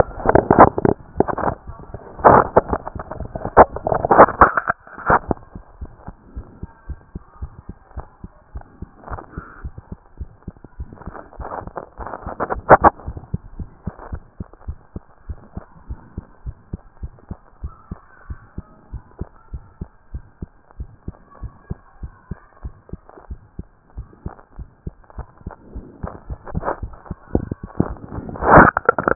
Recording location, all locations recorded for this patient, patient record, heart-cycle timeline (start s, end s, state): mitral valve (MV)
aortic valve (AV)+pulmonary valve (PV)+tricuspid valve (TV)+mitral valve (MV)
#Age: Child
#Sex: Male
#Height: nan
#Weight: nan
#Pregnancy status: False
#Murmur: Present
#Murmur locations: mitral valve (MV)+pulmonary valve (PV)+tricuspid valve (TV)
#Most audible location: mitral valve (MV)
#Systolic murmur timing: Holosystolic
#Systolic murmur shape: Plateau
#Systolic murmur grading: I/VI
#Systolic murmur pitch: Low
#Systolic murmur quality: Blowing
#Diastolic murmur timing: nan
#Diastolic murmur shape: nan
#Diastolic murmur grading: nan
#Diastolic murmur pitch: nan
#Diastolic murmur quality: nan
#Outcome: Normal
#Campaign: 2014 screening campaign
0.00	13.58	unannotated
13.58	13.68	S1
13.68	13.86	systole
13.86	13.94	S2
13.94	14.10	diastole
14.10	14.22	S1
14.22	14.38	systole
14.38	14.48	S2
14.48	14.66	diastole
14.66	14.78	S1
14.78	14.94	systole
14.94	15.04	S2
15.04	15.28	diastole
15.28	15.38	S1
15.38	15.56	systole
15.56	15.64	S2
15.64	15.88	diastole
15.88	16.00	S1
16.00	16.16	systole
16.16	16.24	S2
16.24	16.44	diastole
16.44	16.56	S1
16.56	16.72	systole
16.72	16.80	S2
16.80	17.02	diastole
17.02	17.12	S1
17.12	17.28	systole
17.28	17.38	S2
17.38	17.62	diastole
17.62	17.74	S1
17.74	17.90	systole
17.90	18.00	S2
18.00	18.28	diastole
18.28	18.38	S1
18.38	18.56	systole
18.56	18.66	S2
18.66	18.92	diastole
18.92	19.02	S1
19.02	19.20	systole
19.20	19.28	S2
19.28	19.52	diastole
19.52	19.64	S1
19.64	19.80	systole
19.80	19.90	S2
19.90	20.12	diastole
20.12	20.24	S1
20.24	20.40	systole
20.40	20.50	S2
20.50	20.78	diastole
20.78	20.90	S1
20.90	21.06	systole
21.06	21.16	S2
21.16	21.42	diastole
21.42	21.52	S1
21.52	21.68	systole
21.68	21.78	S2
21.78	22.02	diastole
22.02	22.12	S1
22.12	22.30	systole
22.30	22.38	S2
22.38	22.62	diastole
22.62	22.74	S1
22.74	22.92	systole
22.92	23.00	S2
23.00	23.28	diastole
23.28	23.40	S1
23.40	23.58	systole
23.58	23.66	S2
23.66	23.96	diastole
23.96	24.08	S1
24.08	24.24	systole
24.24	24.34	S2
24.34	24.58	diastole
24.58	24.68	S1
24.68	24.86	systole
24.86	24.94	S2
24.94	25.16	diastole
25.16	25.28	S1
25.28	25.44	systole
25.44	25.54	S2
25.54	25.74	diastole
25.74	25.86	S1
25.86	26.02	systole
26.02	26.12	S2
26.12	26.30	diastole
26.30	29.15	unannotated